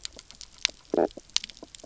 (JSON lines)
{"label": "biophony, knock croak", "recorder": "SoundTrap 300"}